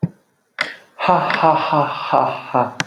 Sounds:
Laughter